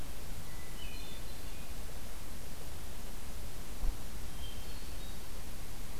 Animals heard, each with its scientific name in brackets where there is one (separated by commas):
Hermit Thrush (Catharus guttatus)